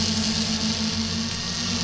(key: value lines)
label: anthrophony, boat engine
recorder: SoundTrap 500